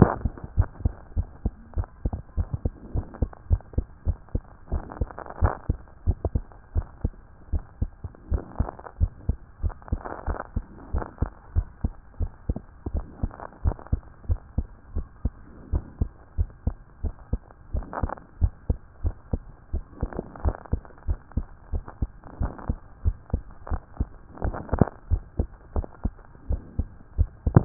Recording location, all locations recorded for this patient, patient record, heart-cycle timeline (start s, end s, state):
tricuspid valve (TV)
aortic valve (AV)+pulmonary valve (PV)+tricuspid valve (TV)+mitral valve (MV)
#Age: Child
#Sex: Male
#Height: 117.0 cm
#Weight: 21.7 kg
#Pregnancy status: False
#Murmur: Absent
#Murmur locations: nan
#Most audible location: nan
#Systolic murmur timing: nan
#Systolic murmur shape: nan
#Systolic murmur grading: nan
#Systolic murmur pitch: nan
#Systolic murmur quality: nan
#Diastolic murmur timing: nan
#Diastolic murmur shape: nan
#Diastolic murmur grading: nan
#Diastolic murmur pitch: nan
#Diastolic murmur quality: nan
#Outcome: Normal
#Campaign: 2014 screening campaign
0.00	0.39	unannotated
0.39	0.56	diastole
0.56	0.68	S1
0.68	0.84	systole
0.84	0.94	S2
0.94	1.16	diastole
1.16	1.28	S1
1.28	1.44	systole
1.44	1.54	S2
1.54	1.76	diastole
1.76	1.88	S1
1.88	2.04	systole
2.04	2.16	S2
2.16	2.38	diastole
2.38	2.48	S1
2.48	2.64	systole
2.64	2.72	S2
2.72	2.94	diastole
2.94	3.06	S1
3.06	3.20	systole
3.20	3.30	S2
3.30	3.50	diastole
3.50	3.62	S1
3.62	3.76	systole
3.76	3.86	S2
3.86	4.06	diastole
4.06	4.18	S1
4.18	4.34	systole
4.34	4.42	S2
4.42	4.72	diastole
4.72	4.84	S1
4.84	5.00	systole
5.00	5.08	S2
5.08	5.40	diastole
5.40	5.54	S1
5.54	5.68	systole
5.68	5.78	S2
5.78	6.06	diastole
6.06	6.18	S1
6.18	6.34	systole
6.34	6.44	S2
6.44	6.74	diastole
6.74	6.86	S1
6.86	7.02	systole
7.02	7.12	S2
7.12	7.52	diastole
7.52	7.64	S1
7.64	7.80	systole
7.80	7.90	S2
7.90	8.30	diastole
8.30	8.42	S1
8.42	8.58	systole
8.58	8.68	S2
8.68	9.00	diastole
9.00	9.12	S1
9.12	9.28	systole
9.28	9.36	S2
9.36	9.62	diastole
9.62	9.74	S1
9.74	9.90	systole
9.90	10.00	S2
10.00	10.26	diastole
10.26	10.38	S1
10.38	10.54	systole
10.54	10.64	S2
10.64	10.92	diastole
10.92	11.04	S1
11.04	11.20	systole
11.20	11.30	S2
11.30	11.54	diastole
11.54	11.66	S1
11.66	11.82	systole
11.82	11.92	S2
11.92	12.20	diastole
12.20	12.30	S1
12.30	12.48	systole
12.48	12.58	S2
12.58	12.92	diastole
12.92	13.04	S1
13.04	13.22	systole
13.22	13.32	S2
13.32	13.64	diastole
13.64	13.76	S1
13.76	13.92	systole
13.92	14.00	S2
14.00	14.28	diastole
14.28	14.40	S1
14.40	14.56	systole
14.56	14.66	S2
14.66	14.94	diastole
14.94	15.06	S1
15.06	15.24	systole
15.24	15.34	S2
15.34	15.72	diastole
15.72	15.84	S1
15.84	16.00	systole
16.00	16.10	S2
16.10	16.38	diastole
16.38	16.50	S1
16.50	16.66	systole
16.66	16.76	S2
16.76	17.02	diastole
17.02	17.14	S1
17.14	17.32	systole
17.32	17.40	S2
17.40	17.74	diastole
17.74	17.86	S1
17.86	18.02	systole
18.02	18.12	S2
18.12	18.40	diastole
18.40	18.52	S1
18.52	18.68	systole
18.68	18.78	S2
18.78	19.04	diastole
19.04	19.14	S1
19.14	19.32	systole
19.32	19.42	S2
19.42	19.72	diastole
19.72	19.84	S1
19.84	20.02	systole
20.02	20.10	S2
20.10	20.44	diastole
20.44	20.56	S1
20.56	20.72	systole
20.72	20.82	S2
20.82	21.08	diastole
21.08	21.18	S1
21.18	21.36	systole
21.36	21.46	S2
21.46	21.72	diastole
21.72	21.84	S1
21.84	22.00	systole
22.00	22.10	S2
22.10	22.40	diastole
22.40	22.52	S1
22.52	22.68	systole
22.68	22.78	S2
22.78	23.04	diastole
23.04	23.16	S1
23.16	23.32	systole
23.32	23.42	S2
23.42	23.70	diastole
23.70	23.82	S1
23.82	23.98	systole
23.98	24.08	S2
24.08	24.42	diastole
24.42	27.65	unannotated